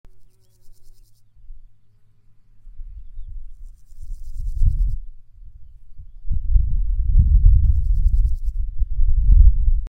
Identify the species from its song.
Pseudochorthippus parallelus